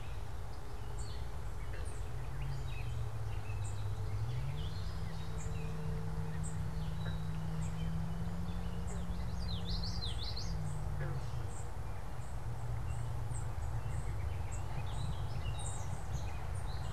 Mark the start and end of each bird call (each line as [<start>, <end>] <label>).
[0.00, 16.93] Gray Catbird (Dumetella carolinensis)
[0.00, 16.93] unidentified bird
[8.73, 10.83] Common Yellowthroat (Geothlypis trichas)
[13.03, 14.83] American Robin (Turdus migratorius)